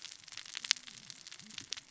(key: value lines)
label: biophony, cascading saw
recorder: SoundTrap 600 or HydroMoth